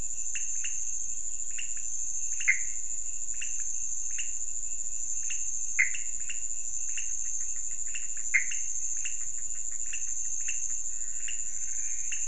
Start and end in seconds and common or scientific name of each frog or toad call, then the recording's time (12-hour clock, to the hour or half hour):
0.0	12.2	pointedbelly frog
2.4	2.9	Pithecopus azureus
5.7	6.2	Pithecopus azureus
8.3	8.8	Pithecopus azureus
1:30am